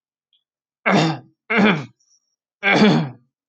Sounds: Throat clearing